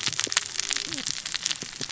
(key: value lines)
label: biophony, cascading saw
recorder: SoundTrap 600 or HydroMoth